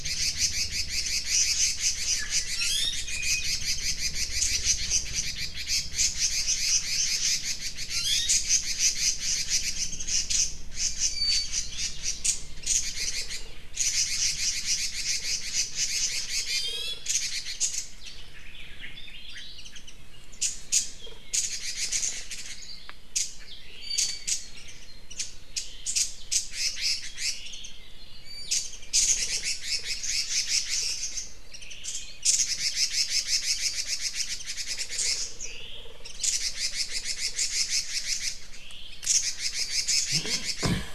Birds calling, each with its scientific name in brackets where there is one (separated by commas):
Hawaii Akepa (Loxops coccineus), Iiwi (Drepanis coccinea), Red-billed Leiothrix (Leiothrix lutea), Warbling White-eye (Zosterops japonicus), Omao (Myadestes obscurus)